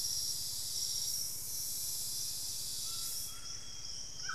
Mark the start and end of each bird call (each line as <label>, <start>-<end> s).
Cinnamon-rumped Foliage-gleaner (Philydor pyrrhodes), 0.0-3.0 s
White-throated Toucan (Ramphastos tucanus), 0.0-4.3 s
Amazonian Grosbeak (Cyanoloxia rothschildii), 2.1-4.3 s
Buff-breasted Wren (Cantorchilus leucotis), 2.9-4.1 s